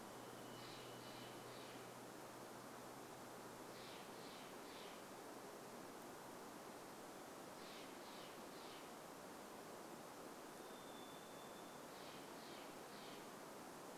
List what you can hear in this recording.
Varied Thrush song, Steller's Jay call